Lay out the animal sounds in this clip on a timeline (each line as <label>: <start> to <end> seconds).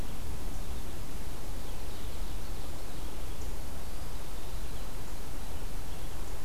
Ovenbird (Seiurus aurocapilla): 1.2 to 3.2 seconds
Eastern Wood-Pewee (Contopus virens): 3.6 to 4.7 seconds